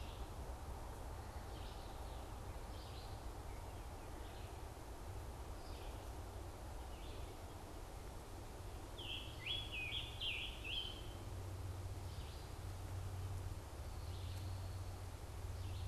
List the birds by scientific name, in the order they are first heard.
Vireo olivaceus, Piranga olivacea